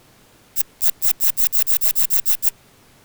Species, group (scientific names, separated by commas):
Phaneroptera falcata, Orthoptera